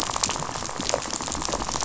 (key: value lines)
label: biophony, rattle
recorder: SoundTrap 500